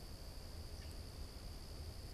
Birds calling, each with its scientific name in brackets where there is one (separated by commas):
Common Grackle (Quiscalus quiscula)